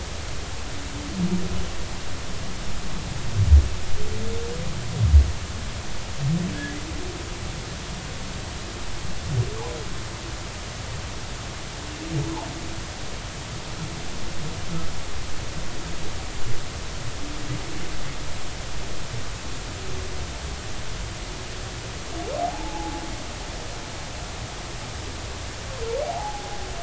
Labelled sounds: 6.5	6.8	humpback whale, 1.6 to 1.8 kHz
12.2	12.5	humpback whale, 0.80 to 1.1 kHz
22.4	23.0	humpback whale, 0.80 to 0.96 kHz
26.1	26.6	humpback whale, 0.80 to 0.96 kHz

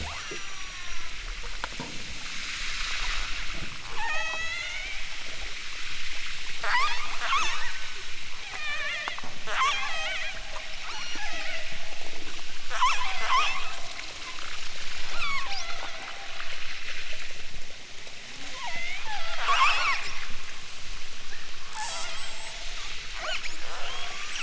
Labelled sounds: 0.0	1.2	killer whale, southern Alaska resident, 0.32 to 7.4 kHz
3.8	5.2	killer whale, southern Alaska resident, 0.32 to 8.0 kHz
6.5	7.7	killer whale, southern Alaska resident, 0.23 to 8.0 kHz
8.3	10.4	killer whale, southern Alaska resident, 0.23 to 8.0 kHz
10.8	11.8	killer whale, southern Alaska resident, 0.73 to 8.0 kHz
12.7	13.8	killer whale, southern Alaska resident, 0.28 to 8.0 kHz
15.1	16.5	killer whale, southern Alaska resident, 0.23 to 8.0 kHz
18.5	20.2	killer whale, southern Alaska resident, 0.23 to 8.0 kHz
21.7	22.8	killer whale, southern Alaska resident, 0.32 to 8.0 kHz
23.1	24.4	killer whale, southern Alaska resident, 0.23 to 8.0 kHz

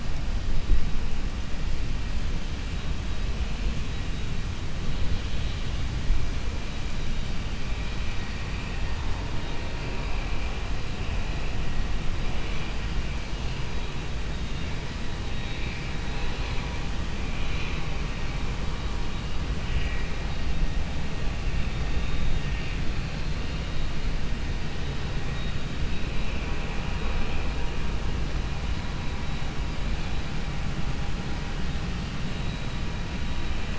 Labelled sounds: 8.4	9.2	vessel noise, 0.80 to 3.2 kHz

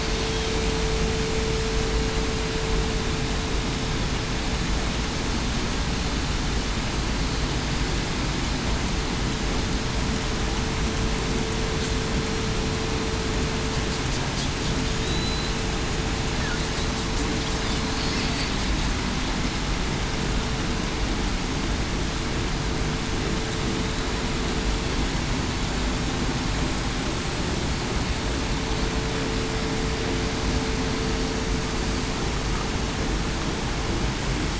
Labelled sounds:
15.0	15.5	killer whale, southern resident, 3.7 to 4.1 kHz
18.1	18.5	killer whale, southern resident, 4.4 to 4.6 kHz

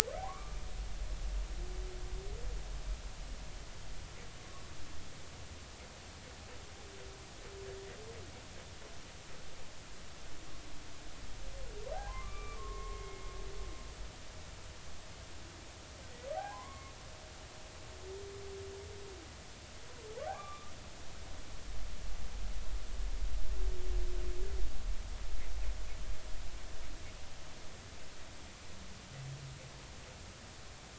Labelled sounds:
0.2	0.6	humpback whale, 0.96 to 1.3 kHz
11.9	13.3	humpback whale, 0.80 to 2.4 kHz
16.3	16.9	humpback whale, 0.80 to 2.3 kHz
20.2	20.7	humpback whale, 0.80 to 3.6 kHz

